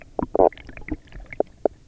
{"label": "biophony, knock croak", "recorder": "SoundTrap 300"}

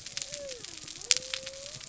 {"label": "biophony", "recorder": "SoundTrap 300"}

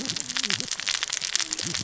{"label": "biophony, cascading saw", "recorder": "SoundTrap 600 or HydroMoth"}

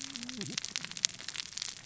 {"label": "biophony, cascading saw", "recorder": "SoundTrap 600 or HydroMoth"}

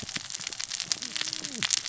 {"label": "biophony, cascading saw", "recorder": "SoundTrap 600 or HydroMoth"}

